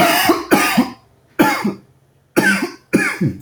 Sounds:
Cough